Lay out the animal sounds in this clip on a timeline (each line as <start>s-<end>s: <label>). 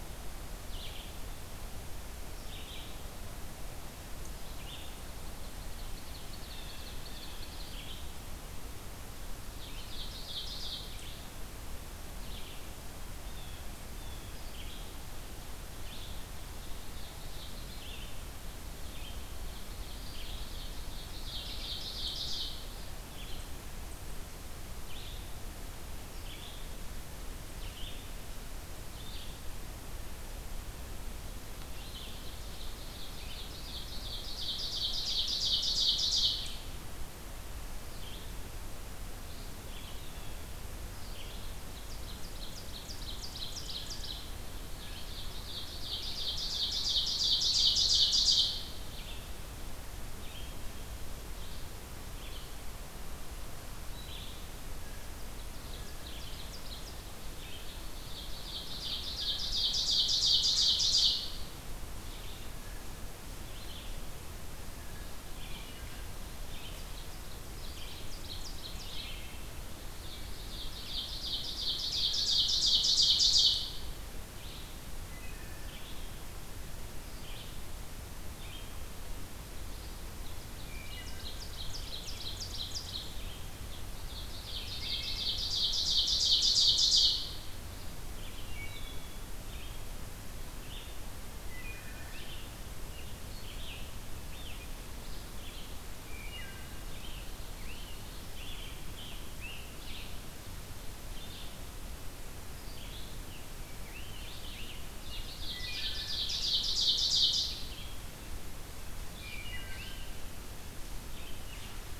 0.0s-51.7s: Red-eyed Vireo (Vireo olivaceus)
4.6s-8.0s: Ovenbird (Seiurus aurocapilla)
6.2s-7.4s: Blue Jay (Cyanocitta cristata)
9.5s-10.9s: Ovenbird (Seiurus aurocapilla)
13.2s-14.4s: Blue Jay (Cyanocitta cristata)
16.2s-17.9s: Ovenbird (Seiurus aurocapilla)
19.4s-22.7s: Ovenbird (Seiurus aurocapilla)
31.8s-36.6s: Ovenbird (Seiurus aurocapilla)
39.7s-40.6s: Blue Jay (Cyanocitta cristata)
41.3s-44.2s: Ovenbird (Seiurus aurocapilla)
44.8s-48.6s: Ovenbird (Seiurus aurocapilla)
52.0s-111.6s: Red-eyed Vireo (Vireo olivaceus)
55.1s-57.0s: Ovenbird (Seiurus aurocapilla)
57.8s-61.4s: Ovenbird (Seiurus aurocapilla)
65.3s-65.9s: Wood Thrush (Hylocichla mustelina)
66.7s-69.0s: Ovenbird (Seiurus aurocapilla)
68.7s-69.5s: Wood Thrush (Hylocichla mustelina)
70.0s-73.9s: Ovenbird (Seiurus aurocapilla)
75.0s-75.7s: Wood Thrush (Hylocichla mustelina)
80.6s-81.3s: Wood Thrush (Hylocichla mustelina)
80.8s-83.0s: Ovenbird (Seiurus aurocapilla)
84.0s-87.4s: Ovenbird (Seiurus aurocapilla)
84.8s-85.3s: Wood Thrush (Hylocichla mustelina)
88.4s-89.2s: Wood Thrush (Hylocichla mustelina)
91.4s-92.1s: Wood Thrush (Hylocichla mustelina)
96.0s-96.7s: Wood Thrush (Hylocichla mustelina)
97.6s-99.7s: Tufted Titmouse (Baeolophus bicolor)
103.2s-105.5s: Scarlet Tanager (Piranga olivacea)
104.7s-107.6s: Ovenbird (Seiurus aurocapilla)
105.5s-106.2s: Wood Thrush (Hylocichla mustelina)
109.1s-110.0s: Wood Thrush (Hylocichla mustelina)